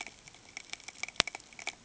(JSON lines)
{"label": "ambient", "recorder": "HydroMoth"}